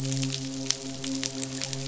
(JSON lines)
{"label": "biophony, midshipman", "recorder": "SoundTrap 500"}